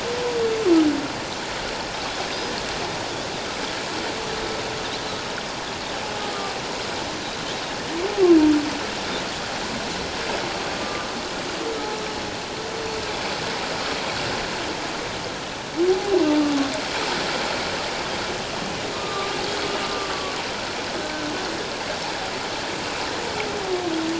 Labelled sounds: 10.7	11.1	humpback whale, 1.2 to 1.3 kHz
18.9	19.3	humpback whale, 1.1 to 1.3 kHz
19.9	20.4	humpback whale, 1.1 to 1.2 kHz

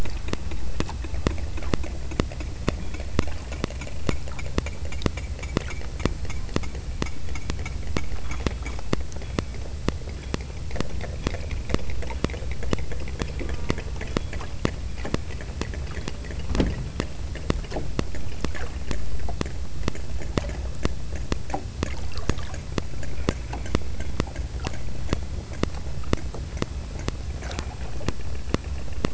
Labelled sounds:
13.4	14.2	killer whale, southern Alaska resident, 0.71 to 1.6 kHz

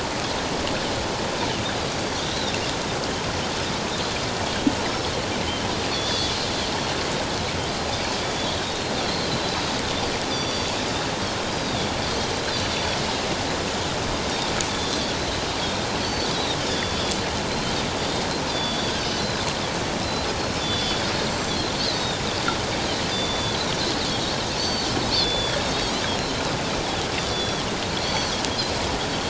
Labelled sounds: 2.0	2.5	Pacific white-sided dolphin, 3.5 to 4.7 kHz
5.9	6.4	Pacific white-sided dolphin, 3.3 to 3.7 kHz
8.2	10.8	Pacific white-sided dolphin, 3.4 to 5.9 kHz
11.5	13.0	Pacific white-sided dolphin, 3.3 to 4.9 kHz
14.7	15.2	Pacific white-sided dolphin, 3.3 to 3.6 kHz
16.0	17.2	Pacific white-sided dolphin, 3.2 to 4.7 kHz
17.5	19.5	Pacific white-sided dolphin, 3.3 to 6.1 kHz
20.4	21.1	Pacific white-sided dolphin, 3.3 to 5.4 kHz
21.8	22.1	Pacific white-sided dolphin, 3.6 to 6.2 kHz
23.1	23.6	Pacific white-sided dolphin, 3.2 to 7.2 kHz
24.6	24.9	Pacific white-sided dolphin, 4.2 to 6.1 kHz
25.2	26.4	Pacific white-sided dolphin, 3.2 to 4.2 kHz
27.2	28.4	Pacific white-sided dolphin, 3.1 to 6.0 kHz

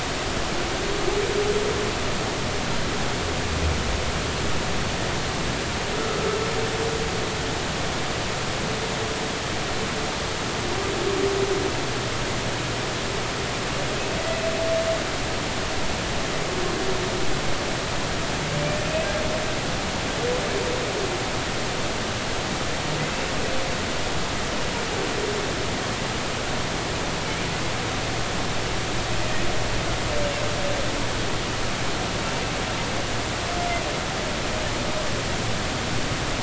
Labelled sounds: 18.8	19.1	humpback whale, 2.4 to 2.6 kHz

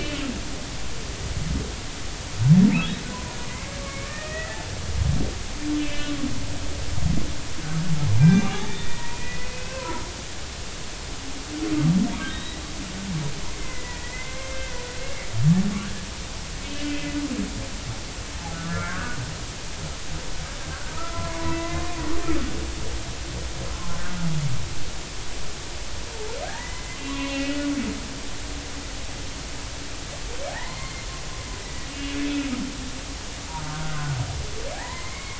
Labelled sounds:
4.0	4.6	humpback whale, 1.1 to 2.6 kHz
5.8	6.1	humpback whale, 2.3 to 3.0 kHz
8.2	10.1	humpback whale, 0.80 to 3.6 kHz
12.2	12.6	humpback whale, 1.5 to 3.9 kHz
13.5	14.8	humpback whale, 1.5 to 2.2 kHz
16.6	16.9	humpback whale, 2.5 to 2.7 kHz
18.5	19.2	humpback whale, 1.0 to 1.8 kHz
20.9	21.9	humpback whale, 0.93 to 2.1 kHz
26.4	27.7	humpback whale, 0.80 to 2.9 kHz
30.5	31.1	humpback whale, 0.80 to 4.3 kHz
31.6	32.5	humpback whale, 1.9 to 2.9 kHz
33.6	35.3	humpback whale, 0.80 to 2.3 kHz

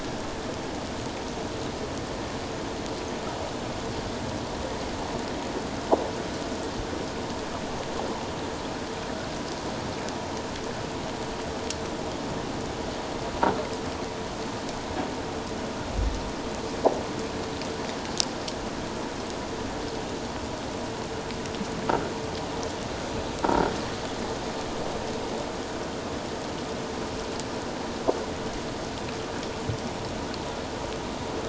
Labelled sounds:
23.4	23.7	croaking sound likely from a nearby submerged object, 1.3 to 1.5 kHz

